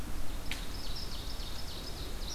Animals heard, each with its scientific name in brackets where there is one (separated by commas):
Ovenbird (Seiurus aurocapilla)